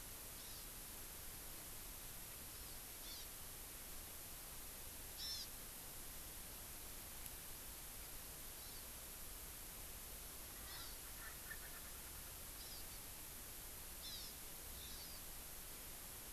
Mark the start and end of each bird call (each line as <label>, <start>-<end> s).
Hawaii Amakihi (Chlorodrepanis virens), 0.4-0.8 s
Hawaii Amakihi (Chlorodrepanis virens), 2.4-3.4 s
Hawaii Amakihi (Chlorodrepanis virens), 5.1-5.6 s
Hawaii Amakihi (Chlorodrepanis virens), 8.5-8.9 s
Erckel's Francolin (Pternistis erckelii), 10.5-12.1 s
Hawaii Amakihi (Chlorodrepanis virens), 10.7-11.0 s
Hawaii Amakihi (Chlorodrepanis virens), 12.5-13.0 s
Hawaii Amakihi (Chlorodrepanis virens), 13.9-14.4 s
Hawaii Amakihi (Chlorodrepanis virens), 14.7-15.3 s